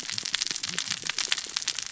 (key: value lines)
label: biophony, cascading saw
recorder: SoundTrap 600 or HydroMoth